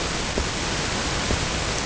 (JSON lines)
{"label": "ambient", "recorder": "HydroMoth"}